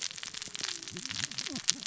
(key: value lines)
label: biophony, cascading saw
recorder: SoundTrap 600 or HydroMoth